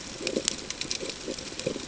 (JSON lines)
{"label": "ambient", "recorder": "HydroMoth"}